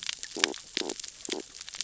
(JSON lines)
{"label": "biophony, stridulation", "recorder": "SoundTrap 600 or HydroMoth"}